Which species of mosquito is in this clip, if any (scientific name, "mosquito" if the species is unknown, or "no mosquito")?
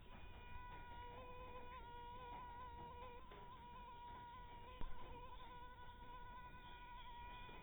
mosquito